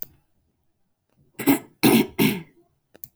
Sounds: Throat clearing